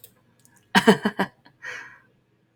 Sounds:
Laughter